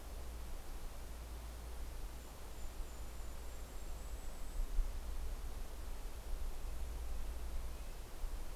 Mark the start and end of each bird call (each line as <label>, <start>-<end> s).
Golden-crowned Kinglet (Regulus satrapa), 1.9-5.1 s
Red-breasted Nuthatch (Sitta canadensis), 4.8-8.5 s